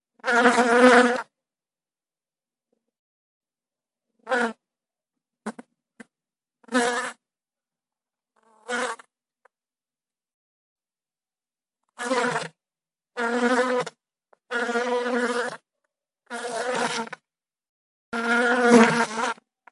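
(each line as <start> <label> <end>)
0.2 A loud and clear buzzing sound of an insect. 1.3
4.2 A loud and clear buzzing sound of an insect. 4.6
5.4 A loud, fast buzzing sound of an insect. 6.1
6.7 A loud and clear buzzing sound of an insect. 7.2
8.6 A loud and clear buzzing sound of an insect. 9.1
9.4 A loud, fast buzzing sound of an insect. 9.5
12.0 A loud and clear buzzing sound of an insect. 12.5
13.1 A loud and clear buzzing sound of an insect. 13.9
14.5 A loud and clear buzzing sound of an insect. 15.6
16.3 A loud and clear buzzing sound of an insect. 17.2
18.1 A loud and clear buzzing sound of an insect. 19.4
19.6 A loud, fast buzzing sound of an insect. 19.7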